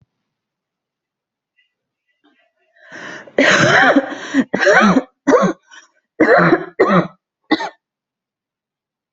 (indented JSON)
{
  "expert_labels": [
    {
      "quality": "good",
      "cough_type": "dry",
      "dyspnea": false,
      "wheezing": false,
      "stridor": false,
      "choking": false,
      "congestion": false,
      "nothing": true,
      "diagnosis": "upper respiratory tract infection",
      "severity": "mild"
    }
  ],
  "age": 44,
  "gender": "female",
  "respiratory_condition": false,
  "fever_muscle_pain": false,
  "status": "COVID-19"
}